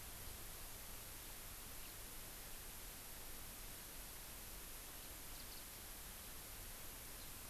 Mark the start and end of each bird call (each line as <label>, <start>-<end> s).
Warbling White-eye (Zosterops japonicus), 5.4-5.6 s
House Finch (Haemorhous mexicanus), 7.2-7.3 s